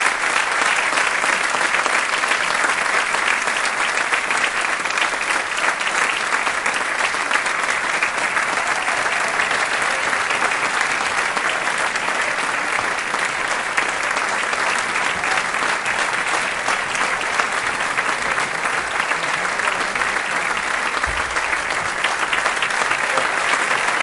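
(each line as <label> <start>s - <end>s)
An audience applauding in a theatre. 0.0s - 24.0s
People murmuring approvingly. 19.3s - 21.6s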